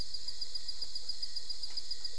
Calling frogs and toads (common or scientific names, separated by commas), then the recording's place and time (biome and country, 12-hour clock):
none
Cerrado, Brazil, 3:15am